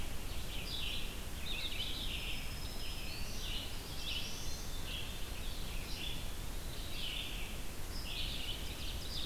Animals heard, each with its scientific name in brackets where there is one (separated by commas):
Red-eyed Vireo (Vireo olivaceus), Eastern Wood-Pewee (Contopus virens), Black-throated Green Warbler (Setophaga virens), Ovenbird (Seiurus aurocapilla), Black-throated Blue Warbler (Setophaga caerulescens), Hermit Thrush (Catharus guttatus)